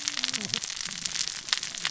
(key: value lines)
label: biophony, cascading saw
recorder: SoundTrap 600 or HydroMoth